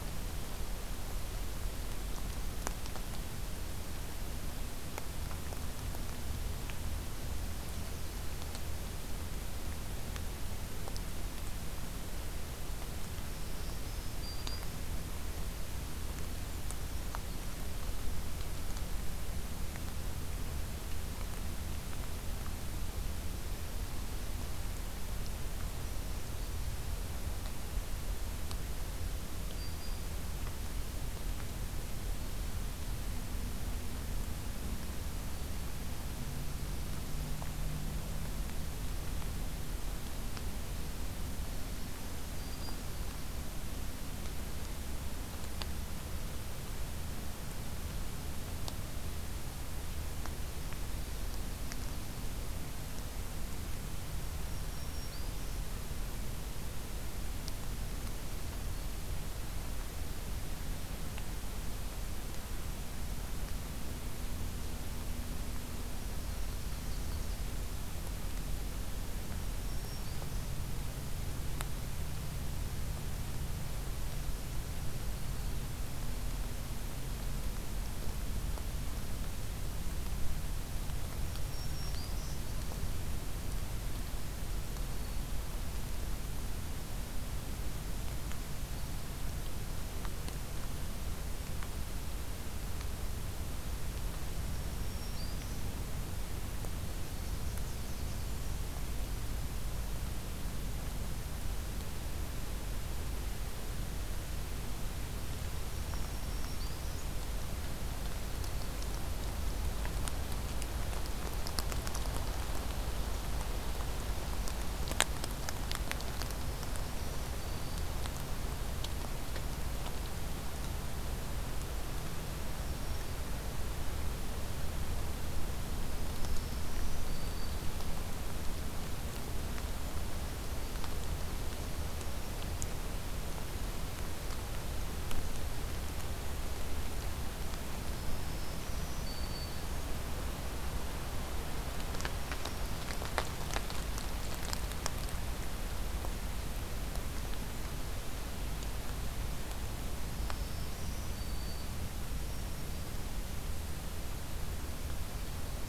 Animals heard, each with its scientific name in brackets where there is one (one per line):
Brown Creeper (Certhia americana)
Yellow-rumped Warbler (Setophaga coronata)
Black-throated Green Warbler (Setophaga virens)